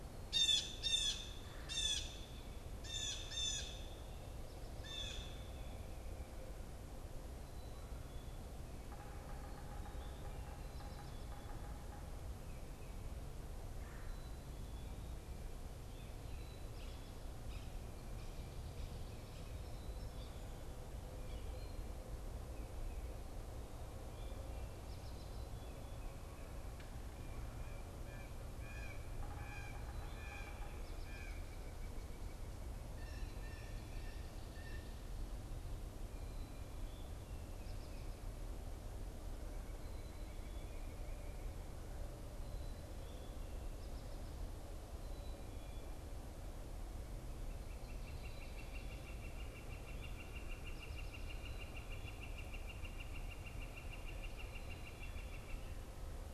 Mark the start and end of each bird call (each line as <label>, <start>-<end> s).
Blue Jay (Cyanocitta cristata), 0.0-5.5 s
Yellow-bellied Sapsucker (Sphyrapicus varius), 8.7-12.4 s
Blue Jay (Cyanocitta cristata), 27.2-35.1 s
Northern Flicker (Colaptes auratus), 47.6-56.3 s